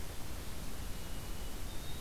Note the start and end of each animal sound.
1.0s-2.0s: White-throated Sparrow (Zonotrichia albicollis)

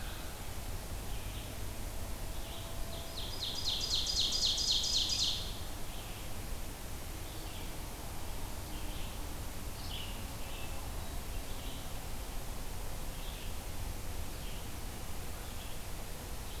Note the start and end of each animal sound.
0.0s-3.0s: Red-eyed Vireo (Vireo olivaceus)
2.9s-5.5s: Ovenbird (Seiurus aurocapilla)
5.9s-16.6s: Red-eyed Vireo (Vireo olivaceus)
10.5s-11.8s: Hermit Thrush (Catharus guttatus)

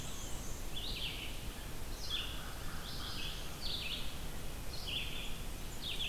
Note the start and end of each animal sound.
0.0s-0.8s: Black-and-white Warbler (Mniotilta varia)
0.0s-2.5s: Red-eyed Vireo (Vireo olivaceus)
1.9s-3.6s: American Crow (Corvus brachyrhynchos)
2.7s-6.1s: Red-eyed Vireo (Vireo olivaceus)
5.1s-6.1s: Blackburnian Warbler (Setophaga fusca)

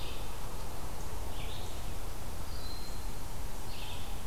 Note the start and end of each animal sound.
0.0s-4.3s: Red-eyed Vireo (Vireo olivaceus)
2.3s-3.1s: Broad-winged Hawk (Buteo platypterus)

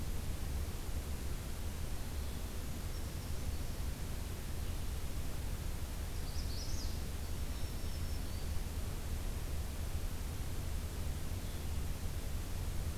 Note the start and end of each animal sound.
2.8s-3.8s: Brown Creeper (Certhia americana)
6.0s-7.0s: Magnolia Warbler (Setophaga magnolia)
7.2s-8.7s: Black-throated Green Warbler (Setophaga virens)

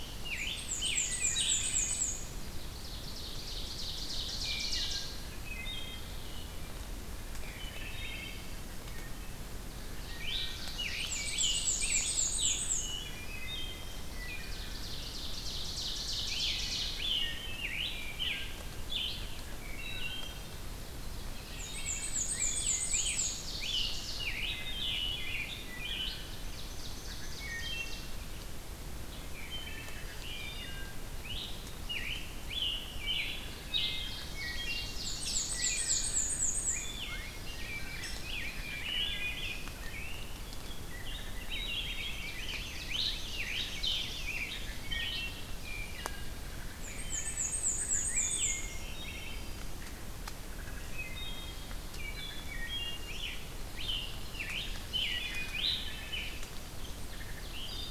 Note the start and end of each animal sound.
0.0s-1.6s: Scarlet Tanager (Piranga olivacea)
0.1s-5.5s: Ovenbird (Seiurus aurocapilla)
0.1s-2.6s: Black-and-white Warbler (Mniotilta varia)
1.0s-2.1s: Wood Thrush (Hylocichla mustelina)
4.3s-5.0s: Wood Thrush (Hylocichla mustelina)
5.3s-6.1s: Wood Thrush (Hylocichla mustelina)
7.4s-9.4s: Wood Thrush (Hylocichla mustelina)
9.7s-12.6s: Ovenbird (Seiurus aurocapilla)
9.9s-10.8s: Wood Thrush (Hylocichla mustelina)
10.1s-12.7s: Scarlet Tanager (Piranga olivacea)
10.9s-12.9s: Black-and-white Warbler (Mniotilta varia)
12.7s-13.9s: Wood Thrush (Hylocichla mustelina)
14.2s-14.7s: Wood Thrush (Hylocichla mustelina)
14.2s-17.1s: Ovenbird (Seiurus aurocapilla)
16.1s-19.2s: Scarlet Tanager (Piranga olivacea)
16.7s-17.4s: Wood Thrush (Hylocichla mustelina)
17.8s-18.6s: Wood Thrush (Hylocichla mustelina)
19.6s-20.5s: Wood Thrush (Hylocichla mustelina)
20.1s-24.4s: Ovenbird (Seiurus aurocapilla)
21.4s-23.4s: Black-and-white Warbler (Mniotilta varia)
21.5s-23.0s: Wood Thrush (Hylocichla mustelina)
22.1s-26.5s: Scarlet Tanager (Piranga olivacea)
24.4s-26.2s: Wood Thrush (Hylocichla mustelina)
26.0s-28.1s: Ovenbird (Seiurus aurocapilla)
27.0s-28.1s: Wood Thrush (Hylocichla mustelina)
29.1s-30.9s: Wood Thrush (Hylocichla mustelina)
30.2s-34.1s: Scarlet Tanager (Piranga olivacea)
33.0s-35.1s: Wood Thrush (Hylocichla mustelina)
33.8s-36.3s: Ovenbird (Seiurus aurocapilla)
34.9s-36.9s: Black-and-white Warbler (Mniotilta varia)
35.4s-36.2s: Wood Thrush (Hylocichla mustelina)
36.7s-38.2s: Wood Thrush (Hylocichla mustelina)
37.0s-40.3s: Rose-breasted Grosbeak (Pheucticus ludovicianus)
38.5s-39.6s: Wood Thrush (Hylocichla mustelina)
40.7s-42.2s: Wood Thrush (Hylocichla mustelina)
41.2s-44.6s: Rose-breasted Grosbeak (Pheucticus ludovicianus)
41.6s-44.0s: Ovenbird (Seiurus aurocapilla)
42.7s-45.4s: Scarlet Tanager (Piranga olivacea)
43.5s-44.8s: Black-throated Blue Warbler (Setophaga caerulescens)
44.6s-49.6s: Wood Thrush (Hylocichla mustelina)
46.5s-49.1s: Black-and-white Warbler (Mniotilta varia)
48.7s-49.8s: Black-throated Green Warbler (Setophaga virens)
50.4s-51.6s: Wood Thrush (Hylocichla mustelina)
51.9s-53.0s: Wood Thrush (Hylocichla mustelina)
52.9s-56.5s: Scarlet Tanager (Piranga olivacea)
55.0s-56.2s: Wood Thrush (Hylocichla mustelina)
56.6s-57.8s: Ovenbird (Seiurus aurocapilla)
57.0s-57.9s: Wood Thrush (Hylocichla mustelina)

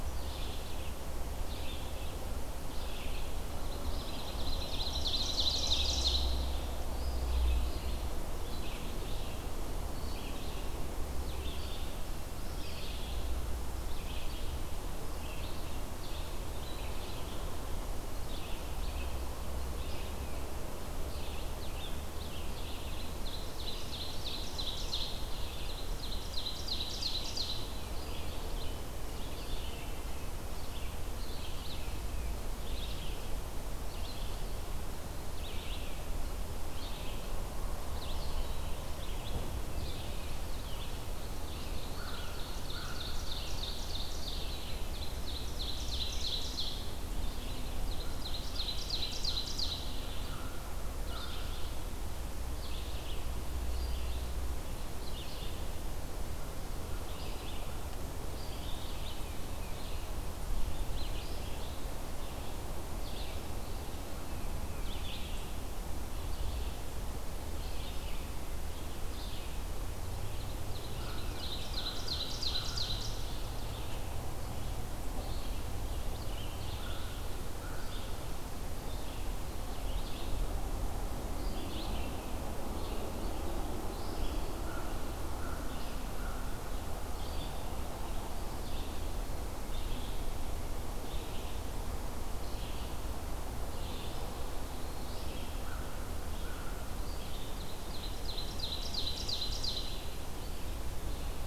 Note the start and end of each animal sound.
0.0s-45.0s: Red-eyed Vireo (Vireo olivaceus)
4.0s-6.5s: Ovenbird (Seiurus aurocapilla)
22.8s-27.7s: Ovenbird (Seiurus aurocapilla)
41.7s-46.9s: Ovenbird (Seiurus aurocapilla)
41.8s-43.0s: American Crow (Corvus brachyrhynchos)
45.7s-101.5s: Red-eyed Vireo (Vireo olivaceus)
47.7s-50.0s: Ovenbird (Seiurus aurocapilla)
50.2s-51.4s: American Crow (Corvus brachyrhynchos)
59.1s-59.8s: Tufted Titmouse (Baeolophus bicolor)
64.1s-64.9s: Tufted Titmouse (Baeolophus bicolor)
70.6s-73.6s: Ovenbird (Seiurus aurocapilla)
76.8s-78.0s: American Crow (Corvus brachyrhynchos)
84.4s-86.5s: American Crow (Corvus brachyrhynchos)
95.5s-96.8s: American Crow (Corvus brachyrhynchos)
97.2s-100.1s: Ovenbird (Seiurus aurocapilla)

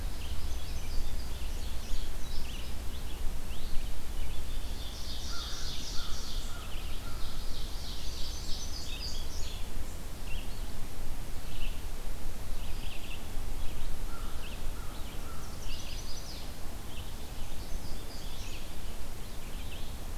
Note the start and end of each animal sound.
0.0s-20.2s: Red-eyed Vireo (Vireo olivaceus)
0.3s-1.4s: Chestnut-sided Warbler (Setophaga pensylvanica)
1.2s-2.7s: Indigo Bunting (Passerina cyanea)
4.3s-6.5s: Ovenbird (Seiurus aurocapilla)
5.2s-7.4s: American Crow (Corvus brachyrhynchos)
6.9s-8.8s: Ovenbird (Seiurus aurocapilla)
8.3s-9.6s: Indigo Bunting (Passerina cyanea)
13.9s-15.7s: American Crow (Corvus brachyrhynchos)
15.3s-16.4s: Chestnut-sided Warbler (Setophaga pensylvanica)
17.5s-18.6s: Chestnut-sided Warbler (Setophaga pensylvanica)

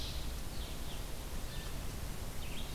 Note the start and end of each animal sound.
0.0s-2.7s: Red-eyed Vireo (Vireo olivaceus)
1.3s-1.9s: Blue Jay (Cyanocitta cristata)

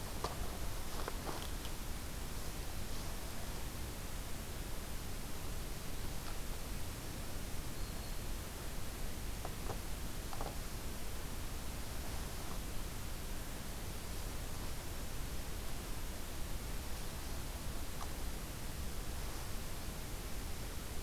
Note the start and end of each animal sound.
7.7s-8.4s: Black-throated Green Warbler (Setophaga virens)

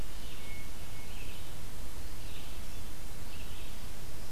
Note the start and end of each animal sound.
0.0s-1.4s: Hermit Thrush (Catharus guttatus)
0.0s-4.3s: Red-eyed Vireo (Vireo olivaceus)

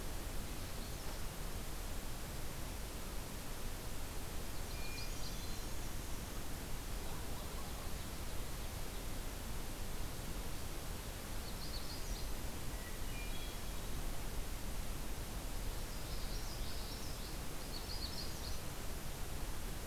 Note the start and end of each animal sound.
4.4s-6.0s: Magnolia Warbler (Setophaga magnolia)
4.6s-6.1s: Hermit Thrush (Catharus guttatus)
6.6s-8.4s: Ovenbird (Seiurus aurocapilla)
11.2s-12.6s: Magnolia Warbler (Setophaga magnolia)
12.6s-14.1s: Hermit Thrush (Catharus guttatus)
15.7s-17.5s: Common Yellowthroat (Geothlypis trichas)
17.5s-18.7s: Magnolia Warbler (Setophaga magnolia)

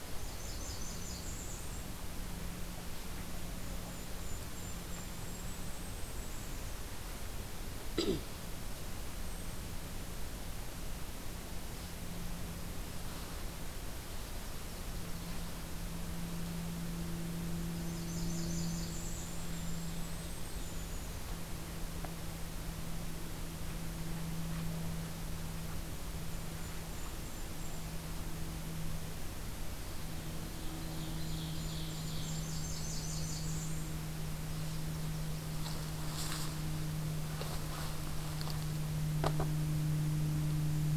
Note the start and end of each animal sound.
0.0s-2.0s: Blackburnian Warbler (Setophaga fusca)
3.4s-6.9s: Golden-crowned Kinglet (Regulus satrapa)
17.5s-19.6s: Blackburnian Warbler (Setophaga fusca)
18.5s-21.2s: Golden-crowned Kinglet (Regulus satrapa)
26.0s-28.1s: Golden-crowned Kinglet (Regulus satrapa)
30.2s-32.8s: Ovenbird (Seiurus aurocapilla)
30.9s-34.0s: Golden-crowned Kinglet (Regulus satrapa)
32.0s-34.0s: Blackburnian Warbler (Setophaga fusca)

